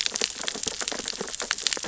{"label": "biophony, sea urchins (Echinidae)", "recorder": "SoundTrap 600 or HydroMoth"}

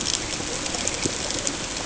{"label": "ambient", "recorder": "HydroMoth"}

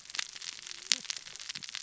{"label": "biophony, cascading saw", "recorder": "SoundTrap 600 or HydroMoth"}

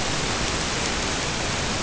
{"label": "ambient", "recorder": "HydroMoth"}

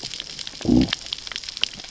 {"label": "biophony, growl", "recorder": "SoundTrap 600 or HydroMoth"}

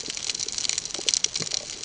{"label": "ambient", "recorder": "HydroMoth"}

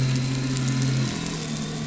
{"label": "anthrophony, boat engine", "recorder": "SoundTrap 500"}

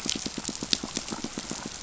{"label": "biophony, pulse", "recorder": "SoundTrap 500"}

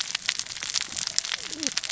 {"label": "biophony, cascading saw", "recorder": "SoundTrap 600 or HydroMoth"}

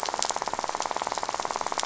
{"label": "biophony, rattle", "recorder": "SoundTrap 500"}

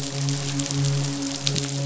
{"label": "biophony, midshipman", "recorder": "SoundTrap 500"}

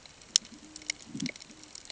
{"label": "ambient", "recorder": "HydroMoth"}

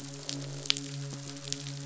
{"label": "biophony, midshipman", "recorder": "SoundTrap 500"}
{"label": "biophony, croak", "recorder": "SoundTrap 500"}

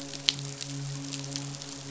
{"label": "biophony, midshipman", "recorder": "SoundTrap 500"}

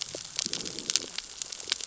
{"label": "biophony, growl", "recorder": "SoundTrap 600 or HydroMoth"}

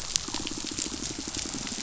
{"label": "biophony, pulse", "recorder": "SoundTrap 500"}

